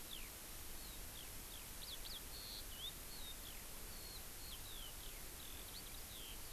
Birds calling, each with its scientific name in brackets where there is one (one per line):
Eurasian Skylark (Alauda arvensis)